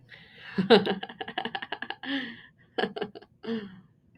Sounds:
Laughter